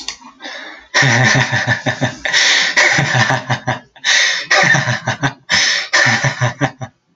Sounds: Laughter